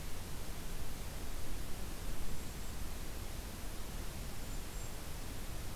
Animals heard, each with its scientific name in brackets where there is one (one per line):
Golden-crowned Kinglet (Regulus satrapa)